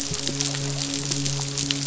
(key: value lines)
label: biophony, midshipman
recorder: SoundTrap 500